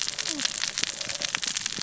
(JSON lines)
{"label": "biophony, cascading saw", "recorder": "SoundTrap 600 or HydroMoth"}